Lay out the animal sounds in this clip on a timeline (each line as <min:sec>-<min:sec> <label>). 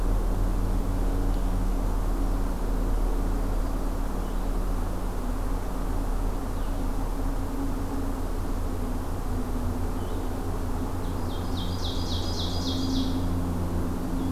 0:04.1-0:14.3 Blue-headed Vireo (Vireo solitarius)
0:11.0-0:13.4 Ovenbird (Seiurus aurocapilla)